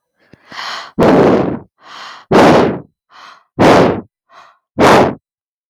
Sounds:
Throat clearing